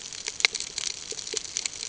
{"label": "ambient", "recorder": "HydroMoth"}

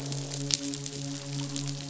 {"label": "biophony, midshipman", "recorder": "SoundTrap 500"}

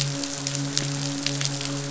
{"label": "biophony, midshipman", "recorder": "SoundTrap 500"}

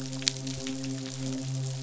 {"label": "biophony, midshipman", "recorder": "SoundTrap 500"}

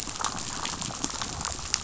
{"label": "biophony, damselfish", "recorder": "SoundTrap 500"}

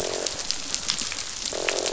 {"label": "biophony, croak", "recorder": "SoundTrap 500"}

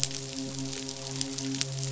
{"label": "biophony, midshipman", "recorder": "SoundTrap 500"}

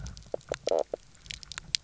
{"label": "biophony, knock croak", "recorder": "SoundTrap 300"}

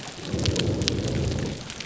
{"label": "biophony", "recorder": "SoundTrap 300"}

